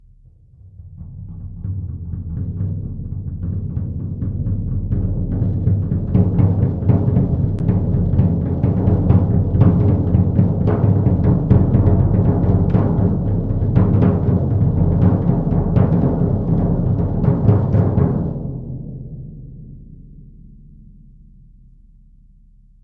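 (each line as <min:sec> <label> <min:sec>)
0:00.8 Several percussive instruments play in a polyrhythmic or arrhythmic manner, gradually increasing in volume. 0:18.1
0:18.1 Echoing percussive instruments being played. 0:22.8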